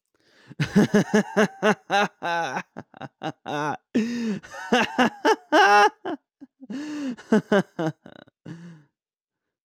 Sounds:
Laughter